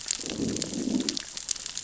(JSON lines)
{"label": "biophony, growl", "recorder": "SoundTrap 600 or HydroMoth"}